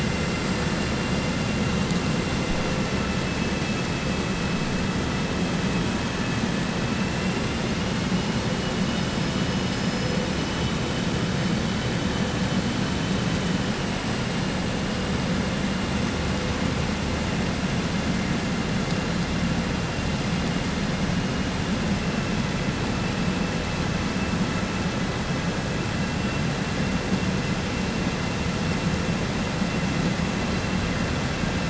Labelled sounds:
7.1	7.7	vessel noise, 2.0 to 3.6 kHz

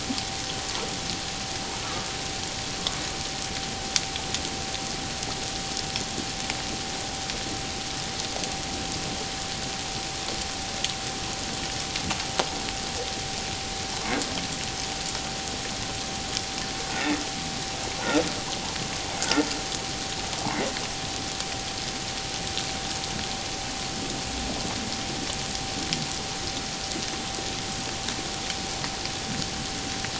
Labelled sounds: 19.2	19.5	humpback whale, 1.3 to 1.6 kHz

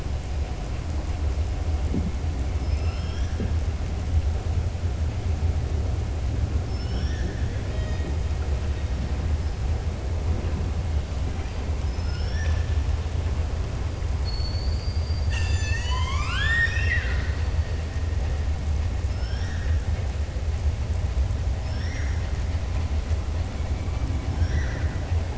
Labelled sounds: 6.6	8.1	killer whale, southern resident, 1.5 to 6.8 kHz
11.8	12.6	killer whale, southern resident, 1.4 to 5.9 kHz
21.5	22.2	killer whale, southern resident, 1.5 to 6.6 kHz
24.3	25.1	killer whale, southern resident, 0.91 to 6.2 kHz

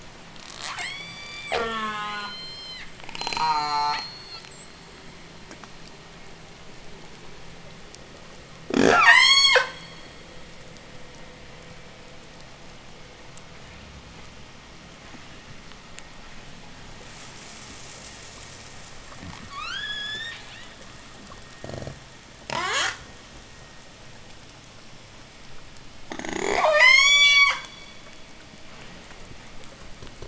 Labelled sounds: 0.3	1.5	killer whale, J pod, 0.44 to 8.0 kHz
1.5	2.4	killer whale, J pod, call S04, 0.11 to 8.0 kHz
1.9	4.8	killer whale, J pod, 1.6 to 8.0 kHz
3.0	4.2	killer whale, J pod, call S04, 0.15 to 8.0 kHz
8.5	10.1	killer whale, J pod, 0.10 to 8.0 kHz
19.3	20.7	killer whale, J pod, 0.81 to 7.5 kHz
22.4	23.0	killer whale, J pod, 0.08 to 8.0 kHz
26.0	28.1	killer whale, J pod, 0.13 to 8.0 kHz

